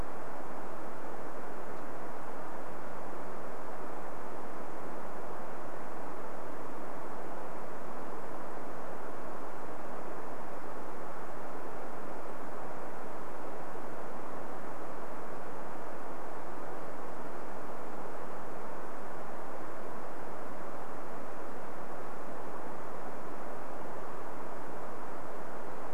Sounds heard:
forest ambience